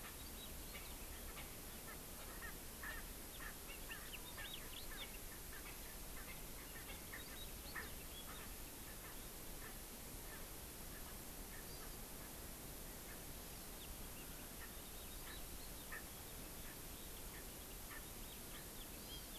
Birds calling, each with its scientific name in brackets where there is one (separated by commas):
House Finch (Haemorhous mexicanus), Hawaii Amakihi (Chlorodrepanis virens), Erckel's Francolin (Pternistis erckelii)